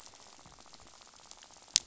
{"label": "biophony, rattle", "recorder": "SoundTrap 500"}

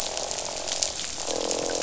{"label": "biophony, croak", "recorder": "SoundTrap 500"}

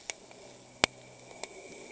{"label": "anthrophony, boat engine", "recorder": "HydroMoth"}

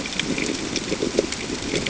{"label": "ambient", "recorder": "HydroMoth"}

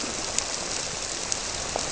{"label": "biophony", "recorder": "SoundTrap 300"}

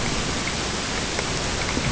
{"label": "ambient", "recorder": "HydroMoth"}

